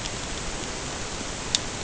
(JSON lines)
{"label": "ambient", "recorder": "HydroMoth"}